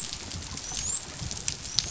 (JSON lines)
{"label": "biophony, dolphin", "recorder": "SoundTrap 500"}